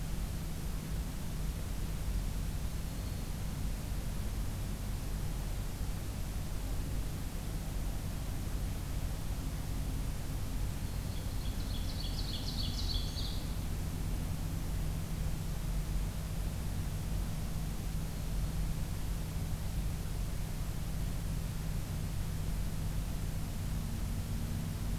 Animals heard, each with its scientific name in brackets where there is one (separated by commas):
Ovenbird (Seiurus aurocapilla), Black-throated Green Warbler (Setophaga virens)